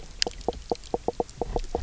{"label": "biophony, knock croak", "recorder": "SoundTrap 300"}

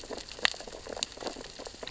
{"label": "biophony, sea urchins (Echinidae)", "recorder": "SoundTrap 600 or HydroMoth"}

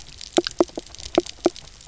{"label": "biophony, knock croak", "recorder": "SoundTrap 300"}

